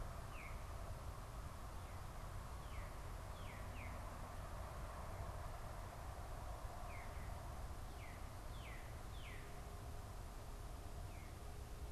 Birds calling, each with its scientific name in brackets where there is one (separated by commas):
Veery (Catharus fuscescens), Northern Cardinal (Cardinalis cardinalis)